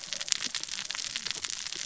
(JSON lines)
{"label": "biophony, cascading saw", "recorder": "SoundTrap 600 or HydroMoth"}